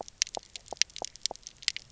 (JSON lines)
{"label": "biophony, pulse", "recorder": "SoundTrap 300"}